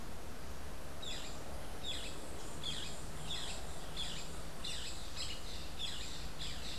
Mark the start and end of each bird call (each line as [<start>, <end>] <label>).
[0.00, 6.78] Boat-billed Flycatcher (Megarynchus pitangua)